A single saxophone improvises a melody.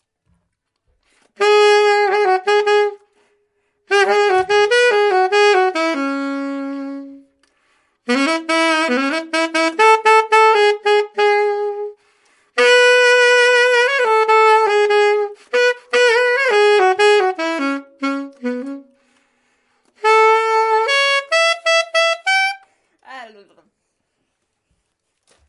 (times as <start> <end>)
1.4 3.0, 3.9 7.2, 8.0 11.9, 12.6 18.9, 20.0 22.6